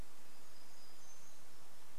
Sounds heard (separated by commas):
warbler song